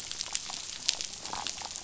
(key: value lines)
label: biophony, damselfish
recorder: SoundTrap 500